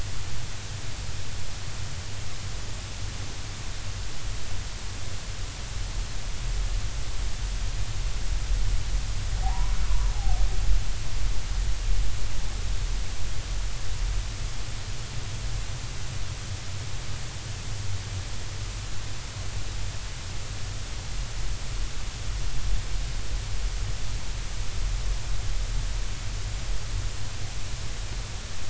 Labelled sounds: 9.4	9.7	humpback whale, 0.80 to 1.1 kHz

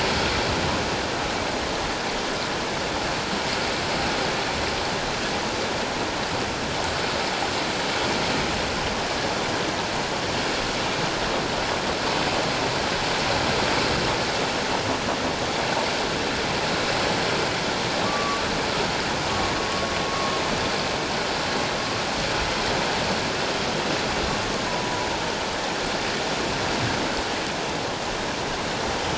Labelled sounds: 18.0	18.4	humpback whale, 1.1 to 1.2 kHz
24.7	25.1	humpback whale, 0.84 to 1.0 kHz

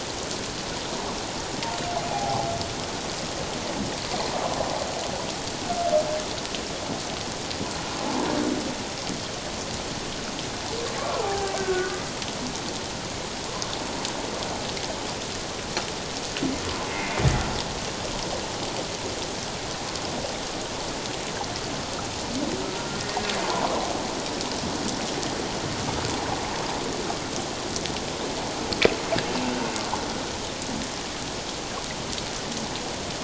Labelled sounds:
2.1	2.5	humpback whale, 0.78 to 0.91 kHz
11.0	11.9	humpback whale, 0.78 to 1.6 kHz
16.9	17.2	humpback whale, 2.0 to 2.2 kHz
23.4	23.7	humpback whale, 0.81 to 1.1 kHz

